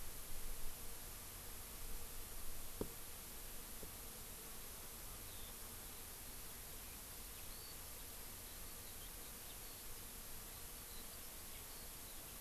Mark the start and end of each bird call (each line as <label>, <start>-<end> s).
Eurasian Skylark (Alauda arvensis), 5.1-12.4 s